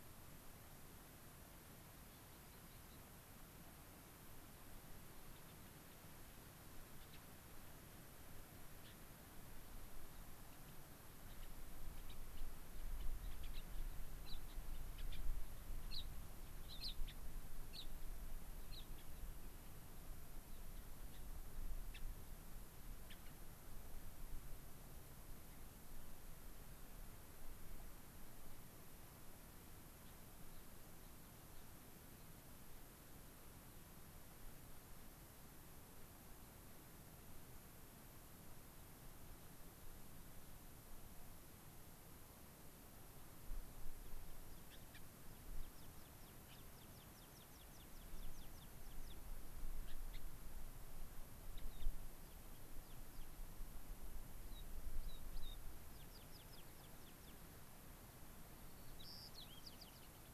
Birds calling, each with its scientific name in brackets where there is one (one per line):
Rock Wren (Salpinctes obsoletus)
American Pipit (Anthus rubescens)
Gray-crowned Rosy-Finch (Leucosticte tephrocotis)
White-crowned Sparrow (Zonotrichia leucophrys)